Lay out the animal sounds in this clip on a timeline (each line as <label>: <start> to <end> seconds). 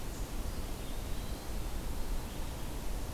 Eastern Wood-Pewee (Contopus virens): 0.3 to 1.6 seconds